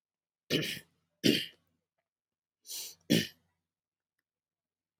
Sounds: Throat clearing